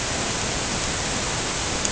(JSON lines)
{"label": "ambient", "recorder": "HydroMoth"}